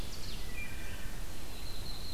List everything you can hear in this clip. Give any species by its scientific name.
Seiurus aurocapilla, Hylocichla mustelina, Setophaga coronata